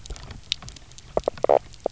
{"label": "biophony, knock croak", "recorder": "SoundTrap 300"}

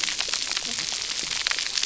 {"label": "biophony, cascading saw", "recorder": "SoundTrap 300"}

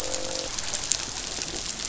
{"label": "biophony, croak", "recorder": "SoundTrap 500"}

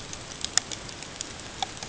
{"label": "ambient", "recorder": "HydroMoth"}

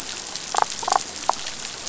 {"label": "biophony, damselfish", "recorder": "SoundTrap 500"}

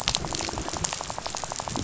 {"label": "biophony, rattle", "recorder": "SoundTrap 500"}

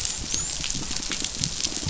{"label": "biophony, dolphin", "recorder": "SoundTrap 500"}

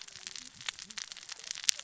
{"label": "biophony, cascading saw", "recorder": "SoundTrap 600 or HydroMoth"}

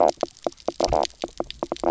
{"label": "biophony, knock croak", "recorder": "SoundTrap 300"}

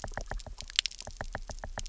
{"label": "biophony, knock", "recorder": "SoundTrap 300"}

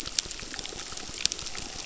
{"label": "biophony, crackle", "recorder": "SoundTrap 600"}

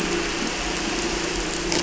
{"label": "anthrophony, boat engine", "recorder": "SoundTrap 300"}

